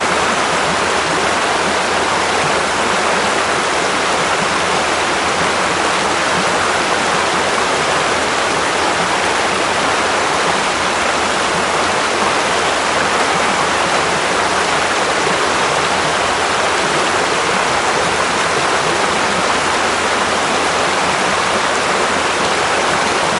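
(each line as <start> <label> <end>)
0.0 Light, distant water flowing. 23.4
0.0 Steady heavy rain falling. 23.4
0.0 Subtle and quiet babbling with short breaks in between. 23.4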